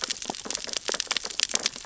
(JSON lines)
{"label": "biophony, sea urchins (Echinidae)", "recorder": "SoundTrap 600 or HydroMoth"}